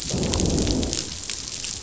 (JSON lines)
{"label": "biophony, growl", "recorder": "SoundTrap 500"}